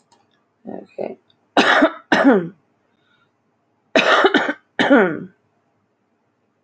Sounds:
Cough